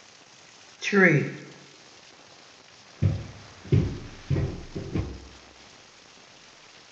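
At 0.82 seconds, someone says "tree." After that, at 3.01 seconds, you can hear footsteps on a wooden floor.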